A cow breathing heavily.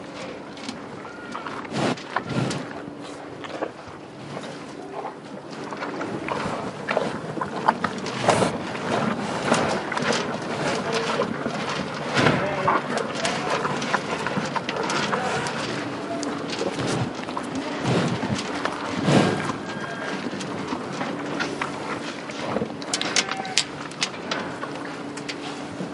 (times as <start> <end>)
1.8 3.0